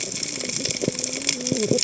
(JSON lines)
{"label": "biophony, cascading saw", "recorder": "HydroMoth"}